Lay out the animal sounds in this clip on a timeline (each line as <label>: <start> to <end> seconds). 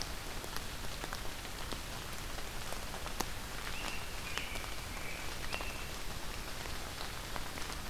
American Robin (Turdus migratorius): 3.6 to 5.9 seconds